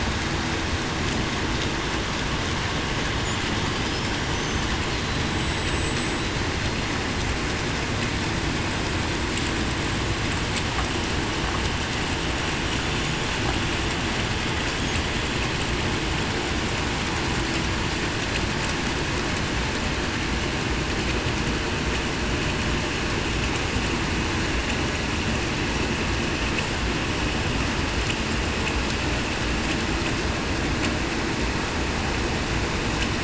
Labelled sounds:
4.9	5.7	killer whale, Bigg's (transient), 3.9 to 4.1 kHz

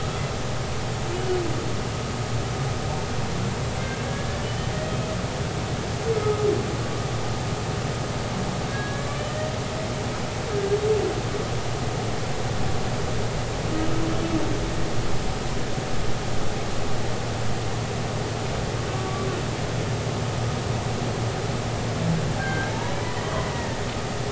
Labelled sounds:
3.8	4.7	humpback whale, 1.5 to 3.1 kHz
6.1	6.4	humpback whale, 1.2 to 1.3 kHz
8.7	9.1	humpback whale, 1.6 to 1.7 kHz
10.5	10.8	humpback whale, 1.6 to 1.7 kHz
18.9	19.3	humpback whale, 1.1 to 1.2 kHz
22.4	22.7	humpback whale, 1.5 to 1.7 kHz
23.0	23.8	humpback whale, 1.7 to 2.0 kHz

